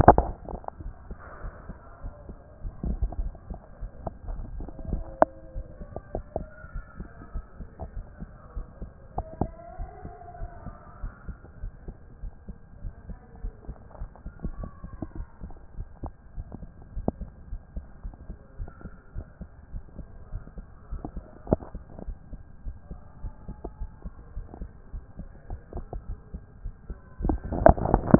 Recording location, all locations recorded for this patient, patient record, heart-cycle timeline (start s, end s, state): aortic valve (AV)
aortic valve (AV)+pulmonary valve (PV)+tricuspid valve (TV)+mitral valve (MV)
#Age: Adolescent
#Sex: Male
#Height: nan
#Weight: nan
#Pregnancy status: False
#Murmur: Absent
#Murmur locations: nan
#Most audible location: nan
#Systolic murmur timing: nan
#Systolic murmur shape: nan
#Systolic murmur grading: nan
#Systolic murmur pitch: nan
#Systolic murmur quality: nan
#Diastolic murmur timing: nan
#Diastolic murmur shape: nan
#Diastolic murmur grading: nan
#Diastolic murmur pitch: nan
#Diastolic murmur quality: nan
#Outcome: Abnormal
#Campaign: 2014 screening campaign
0.00	6.02	unannotated
6.02	6.14	diastole
6.14	6.24	S1
6.24	6.38	systole
6.38	6.48	S2
6.48	6.74	diastole
6.74	6.84	S1
6.84	6.98	systole
6.98	7.08	S2
7.08	7.34	diastole
7.34	7.44	S1
7.44	7.60	systole
7.60	7.68	S2
7.68	7.94	diastole
7.94	8.06	S1
8.06	8.20	systole
8.20	8.28	S2
8.28	8.54	diastole
8.54	8.66	S1
8.66	8.80	systole
8.80	8.90	S2
8.90	9.16	diastole
9.16	9.26	S1
9.26	9.40	systole
9.40	9.52	S2
9.52	9.78	diastole
9.78	9.90	S1
9.90	10.04	systole
10.04	10.14	S2
10.14	10.40	diastole
10.40	10.50	S1
10.50	10.66	systole
10.66	10.74	S2
10.74	11.02	diastole
11.02	11.12	S1
11.12	11.28	systole
11.28	11.36	S2
11.36	11.62	diastole
11.62	11.72	S1
11.72	11.86	systole
11.86	11.96	S2
11.96	12.22	diastole
12.22	12.32	S1
12.32	12.48	systole
12.48	12.56	S2
12.56	12.82	diastole
12.82	12.94	S1
12.94	13.08	systole
13.08	13.18	S2
13.18	13.42	diastole
13.42	13.54	S1
13.54	13.68	systole
13.68	13.78	S2
13.78	14.00	diastole
14.00	28.19	unannotated